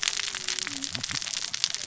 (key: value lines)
label: biophony, cascading saw
recorder: SoundTrap 600 or HydroMoth